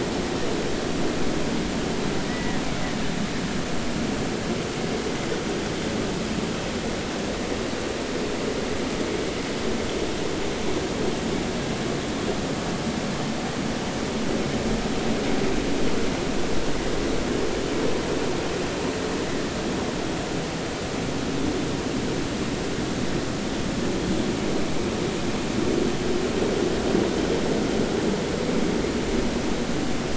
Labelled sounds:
2.3	2.6	killer whale, Bigg's (transient), 1.8 to 2.0 kHz

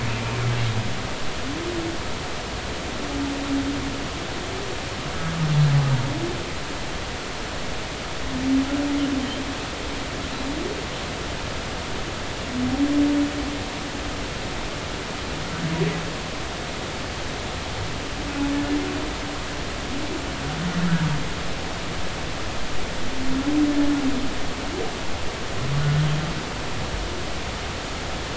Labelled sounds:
25.8	26.1	humpback whale, 1.4 to 1.6 kHz

